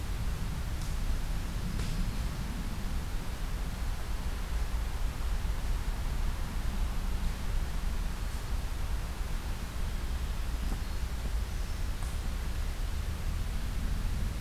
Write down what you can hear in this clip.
Hermit Thrush